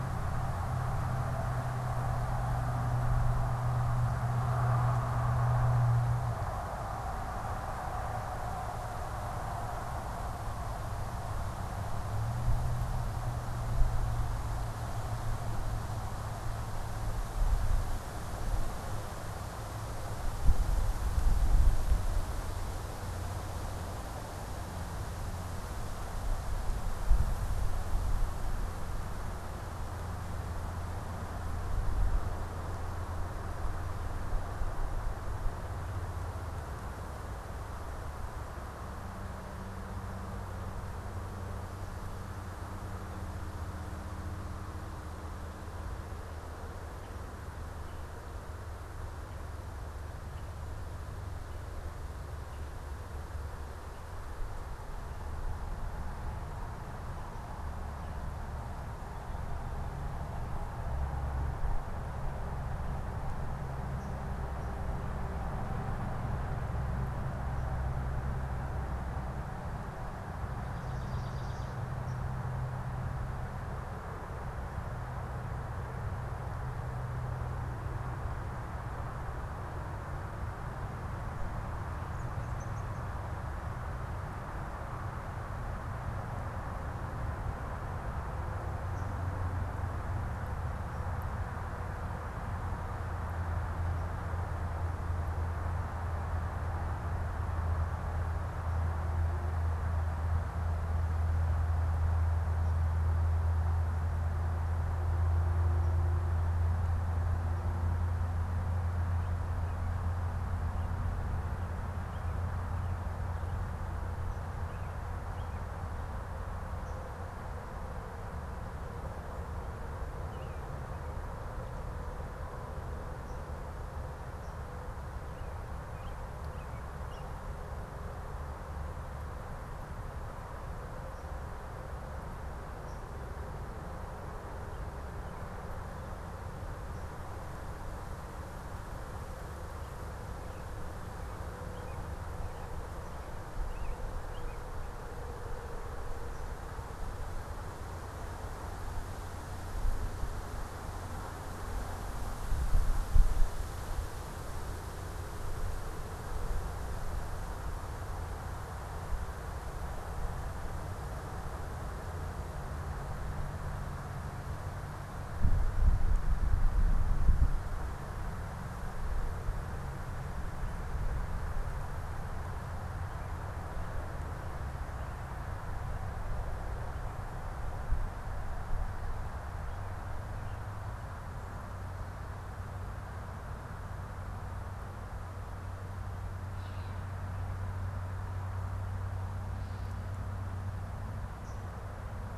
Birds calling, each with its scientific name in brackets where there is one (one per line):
Swamp Sparrow (Melospiza georgiana)
American Robin (Turdus migratorius)
Gray Catbird (Dumetella carolinensis)
unidentified bird